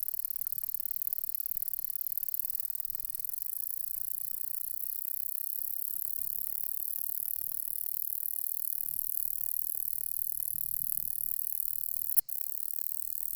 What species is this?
Polysarcus denticauda